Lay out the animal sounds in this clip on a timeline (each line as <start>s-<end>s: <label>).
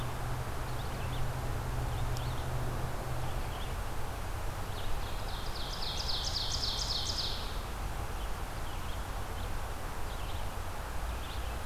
0.0s-11.7s: Red-eyed Vireo (Vireo olivaceus)
4.6s-7.8s: Ovenbird (Seiurus aurocapilla)